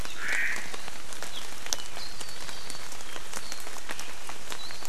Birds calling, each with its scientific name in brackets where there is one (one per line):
Warbling White-eye (Zosterops japonicus)
Omao (Myadestes obscurus)